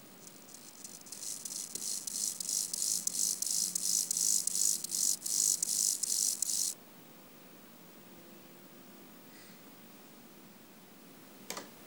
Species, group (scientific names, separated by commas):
Chorthippus mollis, Orthoptera